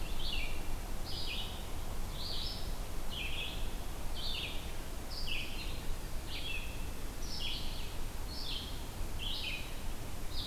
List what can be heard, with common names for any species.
Red-eyed Vireo